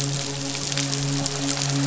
{"label": "biophony, midshipman", "recorder": "SoundTrap 500"}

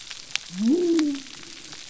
{"label": "biophony", "recorder": "SoundTrap 300"}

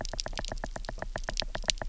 {"label": "biophony, knock", "recorder": "SoundTrap 300"}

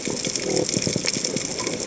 {"label": "biophony", "recorder": "HydroMoth"}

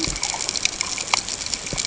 {"label": "ambient", "recorder": "HydroMoth"}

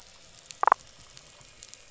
{"label": "biophony, damselfish", "recorder": "SoundTrap 500"}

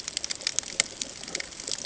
{"label": "ambient", "recorder": "HydroMoth"}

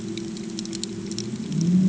{"label": "anthrophony, boat engine", "recorder": "HydroMoth"}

